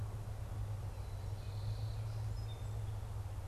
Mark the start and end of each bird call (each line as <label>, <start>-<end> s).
Song Sparrow (Melospiza melodia), 0.8-3.5 s